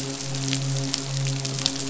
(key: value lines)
label: biophony, midshipman
recorder: SoundTrap 500